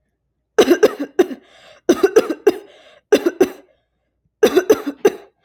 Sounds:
Cough